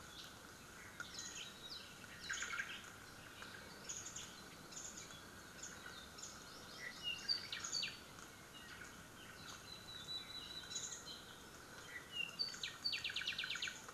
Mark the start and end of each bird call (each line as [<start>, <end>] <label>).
[1.10, 1.50] Warbling White-eye (Zosterops japonicus)
[1.10, 1.90] Apapane (Himatione sanguinea)
[2.20, 2.80] Omao (Myadestes obscurus)
[2.30, 2.60] Warbling White-eye (Zosterops japonicus)
[3.80, 5.20] Warbling White-eye (Zosterops japonicus)
[5.50, 5.80] Warbling White-eye (Zosterops japonicus)
[6.10, 6.40] Warbling White-eye (Zosterops japonicus)
[6.30, 7.60] Hawaii Amakihi (Chlorodrepanis virens)
[6.70, 8.10] Apapane (Himatione sanguinea)
[7.50, 7.90] Warbling White-eye (Zosterops japonicus)
[9.60, 11.10] Red-billed Leiothrix (Leiothrix lutea)
[10.60, 11.10] Warbling White-eye (Zosterops japonicus)
[11.80, 13.80] Apapane (Himatione sanguinea)
[12.40, 12.80] Warbling White-eye (Zosterops japonicus)
[13.50, 13.90] Warbling White-eye (Zosterops japonicus)